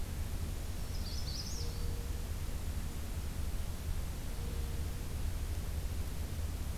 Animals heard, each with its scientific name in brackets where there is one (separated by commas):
Black-throated Green Warbler (Setophaga virens), Magnolia Warbler (Setophaga magnolia)